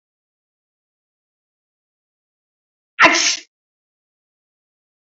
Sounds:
Sneeze